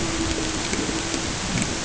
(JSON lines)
{"label": "ambient", "recorder": "HydroMoth"}